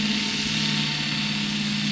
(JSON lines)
{"label": "anthrophony, boat engine", "recorder": "SoundTrap 500"}